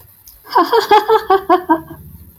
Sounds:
Laughter